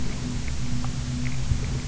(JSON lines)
{"label": "anthrophony, boat engine", "recorder": "SoundTrap 300"}